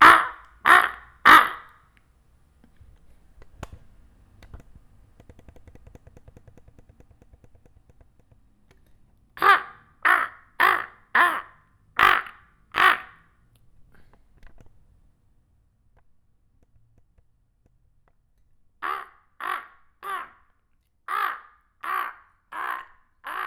Is there a human singing?
no